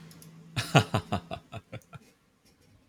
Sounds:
Laughter